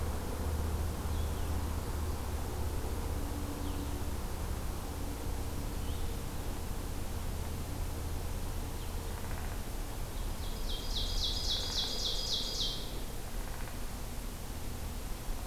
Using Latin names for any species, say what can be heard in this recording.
Vireo solitarius, Dryobates pubescens, Seiurus aurocapilla